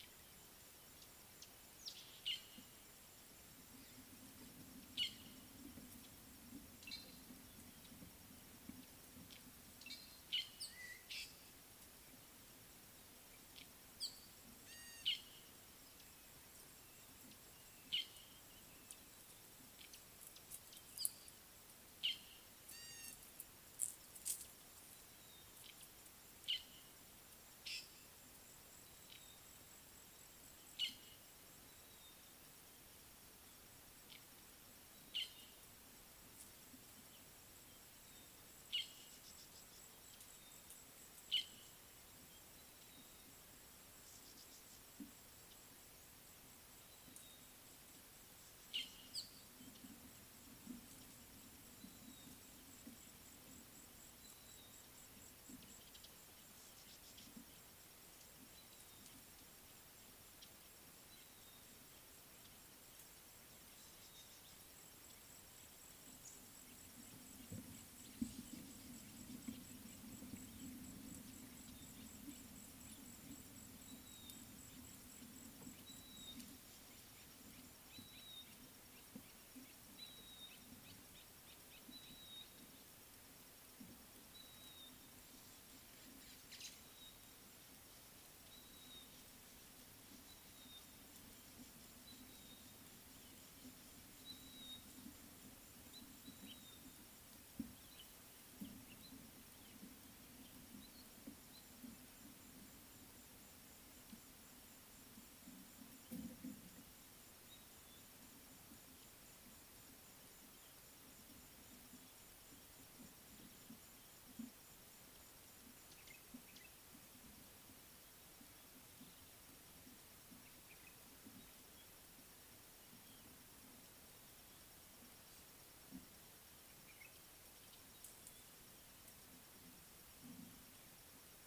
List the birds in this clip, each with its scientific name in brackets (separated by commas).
Gray-backed Camaroptera (Camaroptera brevicaudata), Red-headed Weaver (Anaplectes rubriceps), Fork-tailed Drongo (Dicrurus adsimilis), Red-backed Scrub-Robin (Cercotrichas leucophrys), Somali Tit (Melaniparus thruppi)